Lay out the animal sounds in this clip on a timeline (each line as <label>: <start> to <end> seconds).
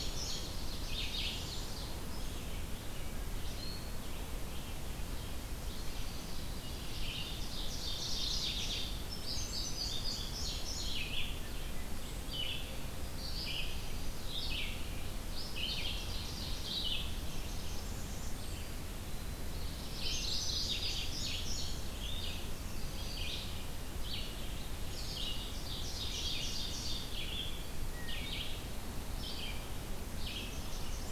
Indigo Bunting (Passerina cyanea): 0.0 to 0.6 seconds
Ovenbird (Seiurus aurocapilla): 0.0 to 1.9 seconds
Red-eyed Vireo (Vireo olivaceus): 0.0 to 31.1 seconds
Chestnut-sided Warbler (Setophaga pensylvanica): 5.4 to 6.5 seconds
Ovenbird (Seiurus aurocapilla): 6.9 to 8.7 seconds
Mourning Warbler (Geothlypis philadelphia): 7.6 to 9.0 seconds
Indigo Bunting (Passerina cyanea): 9.0 to 11.4 seconds
Wood Thrush (Hylocichla mustelina): 11.3 to 12.1 seconds
Ovenbird (Seiurus aurocapilla): 15.2 to 16.9 seconds
Blackburnian Warbler (Setophaga fusca): 17.1 to 18.7 seconds
Eastern Wood-Pewee (Contopus virens): 18.6 to 19.6 seconds
Indigo Bunting (Passerina cyanea): 19.8 to 22.3 seconds
Ovenbird (Seiurus aurocapilla): 25.4 to 27.2 seconds
Wood Thrush (Hylocichla mustelina): 27.8 to 28.6 seconds
Blackburnian Warbler (Setophaga fusca): 30.3 to 31.1 seconds